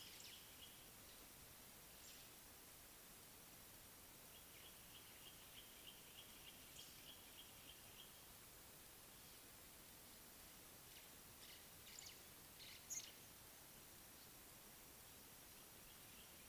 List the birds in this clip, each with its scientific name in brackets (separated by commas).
Speckle-fronted Weaver (Sporopipes frontalis), White-browed Sparrow-Weaver (Plocepasser mahali)